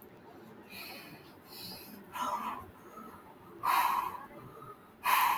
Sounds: Sigh